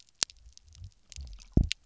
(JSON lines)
{"label": "biophony, double pulse", "recorder": "SoundTrap 300"}